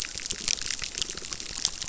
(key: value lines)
label: biophony, crackle
recorder: SoundTrap 600